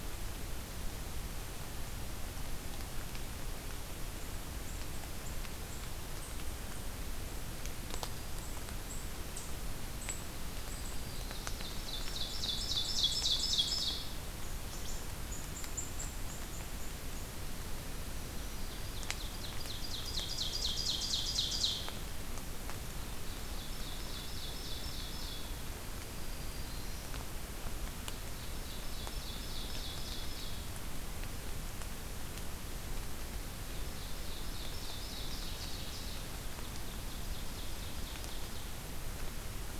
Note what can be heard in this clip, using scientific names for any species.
Tamias striatus, Setophaga virens, Seiurus aurocapilla